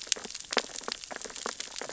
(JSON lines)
{"label": "biophony, sea urchins (Echinidae)", "recorder": "SoundTrap 600 or HydroMoth"}